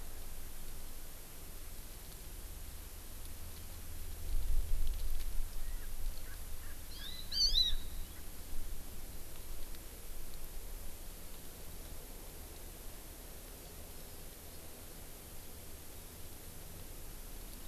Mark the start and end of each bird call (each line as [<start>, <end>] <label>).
[5.64, 8.24] Erckel's Francolin (Pternistis erckelii)
[6.94, 7.84] Hawaii Amakihi (Chlorodrepanis virens)